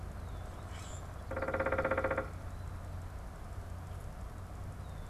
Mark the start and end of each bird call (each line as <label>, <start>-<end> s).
Common Grackle (Quiscalus quiscula), 0.5-1.1 s
unidentified bird, 1.2-2.5 s